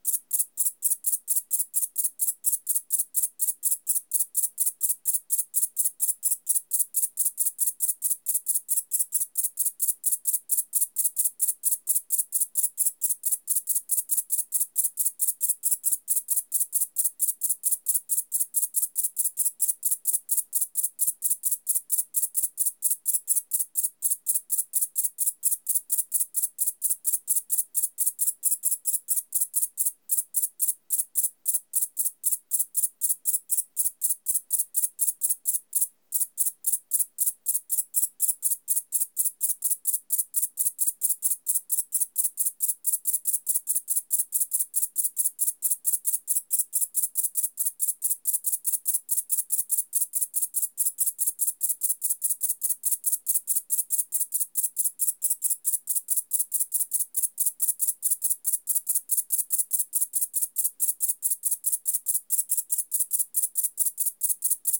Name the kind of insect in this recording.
orthopteran